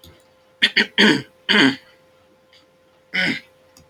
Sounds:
Throat clearing